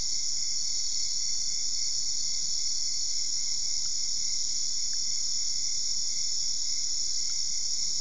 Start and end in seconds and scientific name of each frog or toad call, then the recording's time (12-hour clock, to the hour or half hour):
none
10:30pm